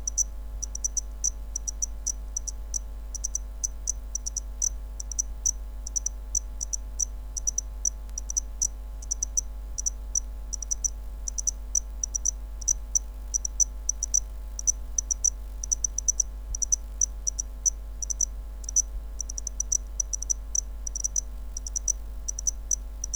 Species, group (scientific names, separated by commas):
Zvenella geniculata, Orthoptera